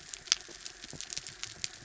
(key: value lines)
label: anthrophony, mechanical
recorder: SoundTrap 300